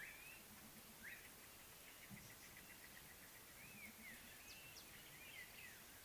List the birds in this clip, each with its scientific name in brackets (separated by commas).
White-browed Coucal (Centropus superciliosus)